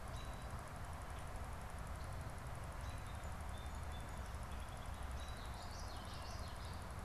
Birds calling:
Song Sparrow (Melospiza melodia)
American Robin (Turdus migratorius)
Common Yellowthroat (Geothlypis trichas)

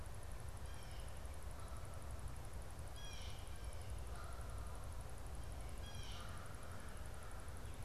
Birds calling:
Canada Goose (Branta canadensis)
Blue Jay (Cyanocitta cristata)

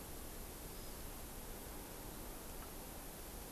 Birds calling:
Hawaii Amakihi (Chlorodrepanis virens)

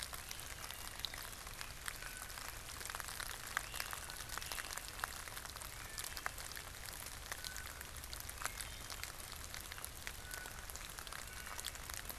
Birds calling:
Blue Jay (Cyanocitta cristata)
Wood Thrush (Hylocichla mustelina)
Great Crested Flycatcher (Myiarchus crinitus)

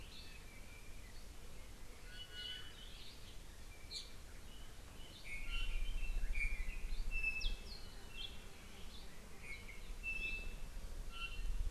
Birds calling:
Apapane (Himatione sanguinea)
Iiwi (Drepanis coccinea)

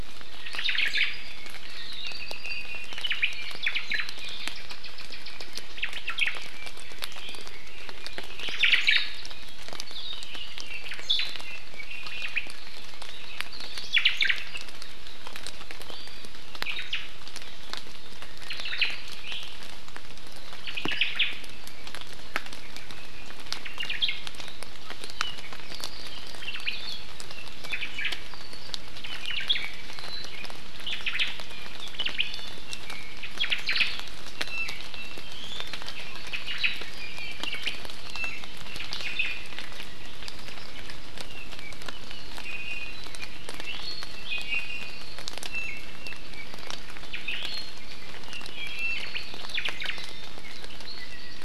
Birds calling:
Omao (Myadestes obscurus)
Hawaii Akepa (Loxops coccineus)
Iiwi (Drepanis coccinea)
Apapane (Himatione sanguinea)

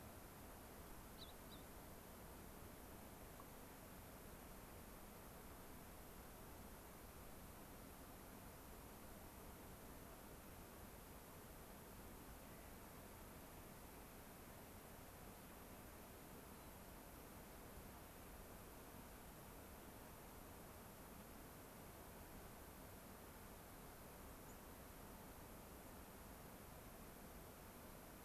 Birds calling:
White-crowned Sparrow (Zonotrichia leucophrys)
Clark's Nutcracker (Nucifraga columbiana)
Gray-crowned Rosy-Finch (Leucosticte tephrocotis)

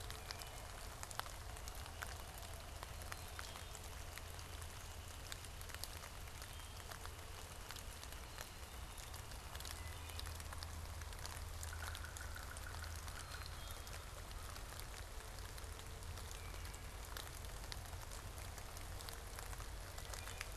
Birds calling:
Yellow-bellied Sapsucker (Sphyrapicus varius)
Wood Thrush (Hylocichla mustelina)

